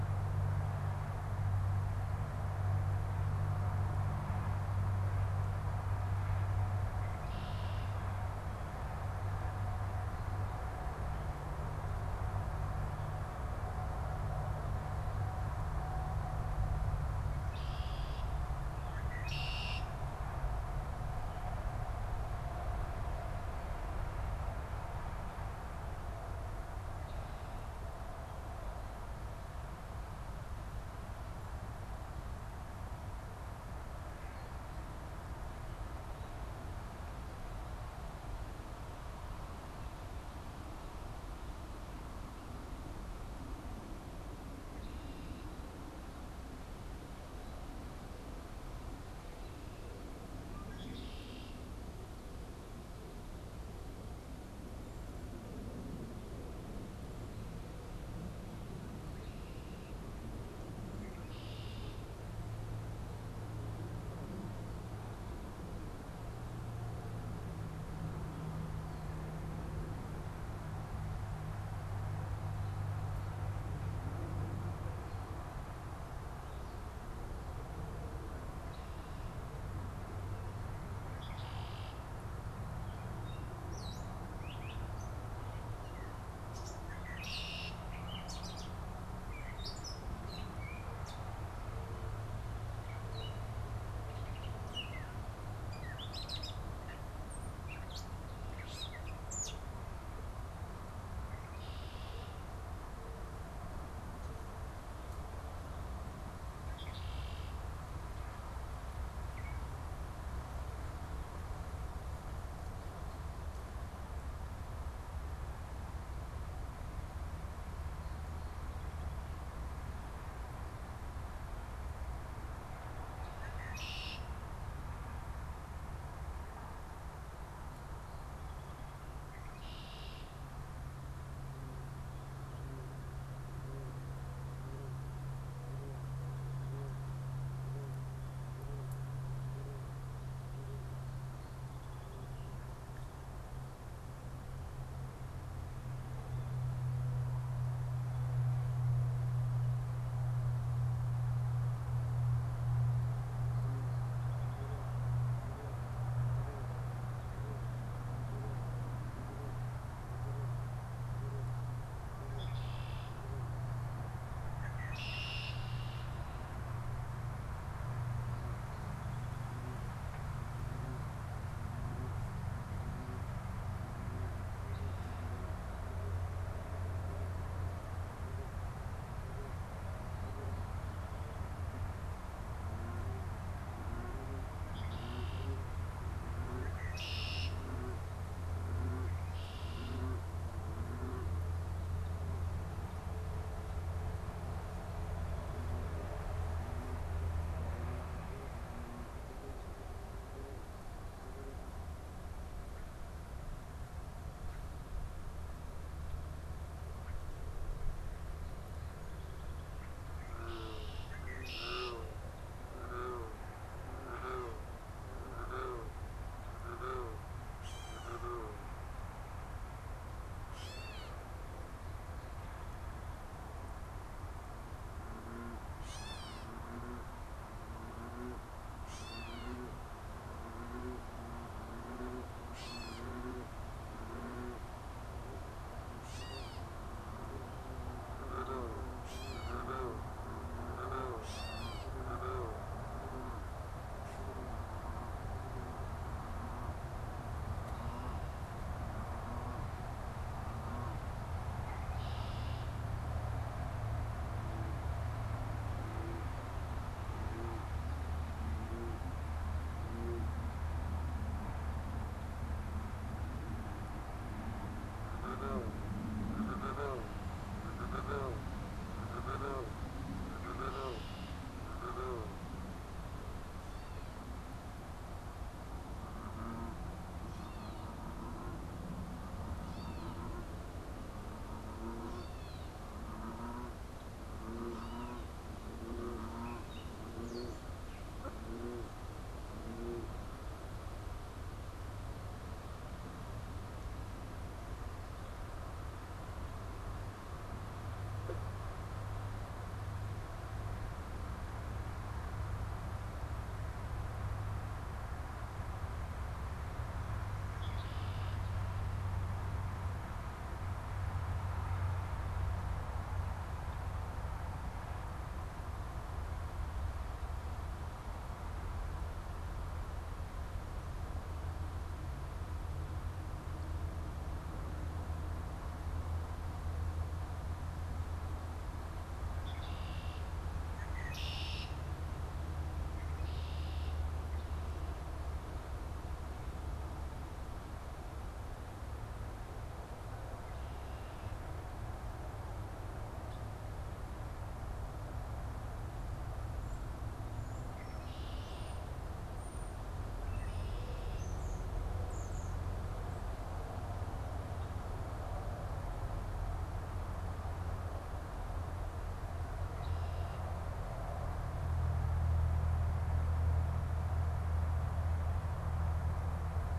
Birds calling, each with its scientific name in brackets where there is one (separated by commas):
European Starling (Sturnus vulgaris), Gray Catbird (Dumetella carolinensis), Red-winged Blackbird (Agelaius phoeniceus)